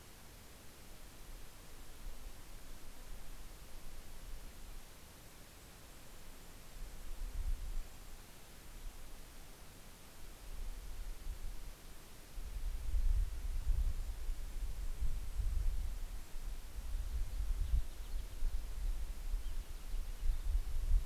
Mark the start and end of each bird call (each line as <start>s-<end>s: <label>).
5.3s-8.6s: Golden-crowned Kinglet (Regulus satrapa)
12.7s-16.5s: Golden-crowned Kinglet (Regulus satrapa)
16.9s-21.1s: Cassin's Finch (Haemorhous cassinii)